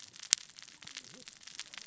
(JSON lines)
{"label": "biophony, cascading saw", "recorder": "SoundTrap 600 or HydroMoth"}